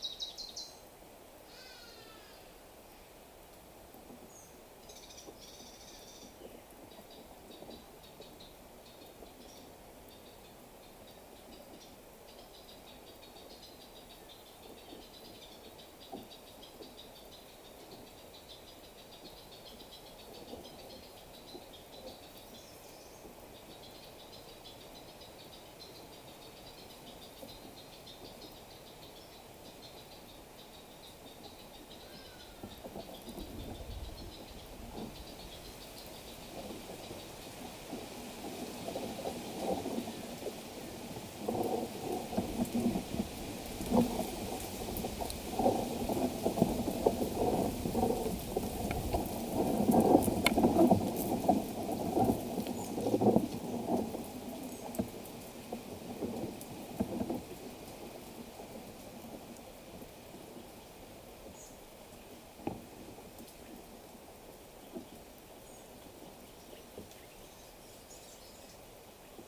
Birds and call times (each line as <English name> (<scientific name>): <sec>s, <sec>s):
Hadada Ibis (Bostrychia hagedash): 2.0s